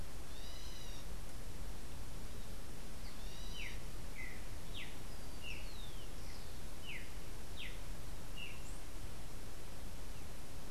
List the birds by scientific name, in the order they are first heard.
unidentified bird, Saltator striatipectus